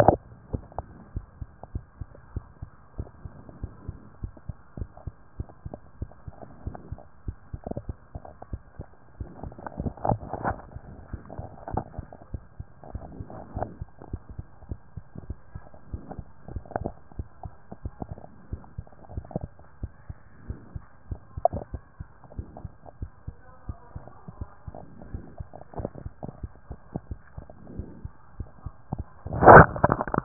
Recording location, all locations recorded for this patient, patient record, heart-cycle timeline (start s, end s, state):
mitral valve (MV)
aortic valve (AV)+pulmonary valve (PV)+tricuspid valve (TV)+mitral valve (MV)
#Age: Child
#Sex: Male
#Height: 124.0 cm
#Weight: 35.8 kg
#Pregnancy status: False
#Murmur: Absent
#Murmur locations: nan
#Most audible location: nan
#Systolic murmur timing: nan
#Systolic murmur shape: nan
#Systolic murmur grading: nan
#Systolic murmur pitch: nan
#Systolic murmur quality: nan
#Diastolic murmur timing: nan
#Diastolic murmur shape: nan
#Diastolic murmur grading: nan
#Diastolic murmur pitch: nan
#Diastolic murmur quality: nan
#Outcome: Abnormal
#Campaign: 2014 screening campaign
0.00	1.68	unannotated
1.68	1.86	S1
1.86	1.96	systole
1.96	2.08	S2
2.08	2.34	diastole
2.34	2.48	S1
2.48	2.58	systole
2.58	2.68	S2
2.68	2.94	diastole
2.94	3.10	S1
3.10	3.22	systole
3.22	3.32	S2
3.32	3.60	diastole
3.60	3.74	S1
3.74	3.78	systole
3.78	3.86	S2
3.86	4.18	diastole
4.18	4.32	S1
4.32	4.38	systole
4.38	4.42	S2
4.42	4.76	diastole
4.76	4.88	S1
4.88	4.96	systole
4.96	5.02	S2
5.02	5.34	diastole
5.34	5.50	S1
5.50	5.62	systole
5.62	5.72	S2
5.72	5.98	diastole
5.98	6.12	S1
6.12	6.24	systole
6.24	6.34	S2
6.34	6.64	diastole
6.64	6.78	S1
6.78	6.88	systole
6.88	7.00	S2
7.00	7.26	diastole
7.26	7.40	S1
7.40	7.50	systole
7.50	7.60	S2
7.60	7.86	diastole
7.86	7.98	S1
7.98	8.10	systole
8.10	8.22	S2
8.22	8.50	diastole
8.50	8.64	S1
8.64	8.76	systole
8.76	8.88	S2
8.88	9.18	diastole
9.18	9.32	S1
9.32	9.44	systole
9.44	9.54	S2
9.54	9.84	diastole
9.84	9.98	S1
9.98	10.04	systole
10.04	10.18	S2
10.18	10.44	diastole
10.44	10.58	S1
10.58	10.66	systole
10.66	10.74	S2
10.74	11.06	diastole
11.06	11.20	S1
11.20	11.32	systole
11.32	11.46	S2
11.46	11.72	diastole
11.72	11.86	S1
11.86	11.96	systole
11.96	12.06	S2
12.06	12.32	diastole
12.32	12.46	S1
12.46	12.56	systole
12.56	12.66	S2
12.66	12.92	diastole
12.92	13.10	S1
13.10	13.18	systole
13.18	13.28	S2
13.28	13.54	diastole
13.54	13.70	S1
13.70	13.72	systole
13.72	13.78	S2
13.78	14.10	diastole
14.10	14.22	S1
14.22	14.28	systole
14.28	14.36	S2
14.36	14.66	diastole
14.66	14.78	S1
14.78	14.86	systole
14.86	14.94	S2
14.94	15.28	diastole
15.28	15.40	S1
15.40	15.52	systole
15.52	15.62	S2
15.62	15.90	diastole
15.90	16.06	S1
16.06	16.16	systole
16.16	16.26	S2
16.26	16.54	diastole
16.54	16.66	S1
16.66	16.76	systole
16.76	16.92	S2
16.92	17.18	diastole
17.18	17.30	S1
17.30	17.42	systole
17.42	17.52	S2
17.52	17.82	diastole
17.82	17.94	S1
17.94	18.00	systole
18.00	18.10	S2
18.10	18.46	diastole
18.46	18.64	S1
18.64	18.72	systole
18.72	18.86	S2
18.86	19.14	diastole
19.14	19.28	S1
19.28	19.36	systole
19.36	19.50	S2
19.50	19.80	diastole
19.80	19.94	S1
19.94	20.06	systole
20.06	20.18	S2
20.18	20.48	diastole
20.48	20.62	S1
20.62	20.72	systole
20.72	20.82	S2
20.82	21.10	diastole
21.10	21.20	S1
21.20	21.30	systole
21.30	21.42	S2
21.42	21.72	diastole
21.72	21.84	S1
21.84	21.96	systole
21.96	22.08	S2
22.08	22.36	diastole
22.36	22.50	S1
22.50	22.62	systole
22.62	22.72	S2
22.72	23.00	diastole
23.00	23.12	S1
23.12	23.24	systole
23.24	23.36	S2
23.36	23.66	diastole
23.66	23.78	S1
23.78	23.92	systole
23.92	24.04	S2
24.04	24.38	diastole
24.38	24.50	S1
24.50	24.62	systole
24.62	24.74	S2
24.74	25.08	diastole
25.08	25.24	S1
25.24	25.34	systole
25.34	25.48	S2
25.48	25.78	diastole
25.78	25.92	S1
25.92	26.04	systole
26.04	26.14	S2
26.14	26.42	diastole
26.42	26.56	S1
26.56	26.68	systole
26.68	26.78	S2
26.78	27.08	diastole
27.08	27.20	S1
27.20	27.36	systole
27.36	27.46	S2
27.46	27.76	diastole
27.76	27.90	S1
27.90	28.02	systole
28.02	28.12	S2
28.12	28.38	diastole
28.38	28.48	S1
28.48	30.24	unannotated